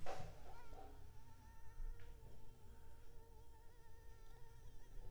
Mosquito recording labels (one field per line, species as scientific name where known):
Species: Anopheles arabiensis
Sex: female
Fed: unfed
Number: one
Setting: cup